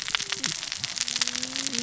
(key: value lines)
label: biophony, cascading saw
recorder: SoundTrap 600 or HydroMoth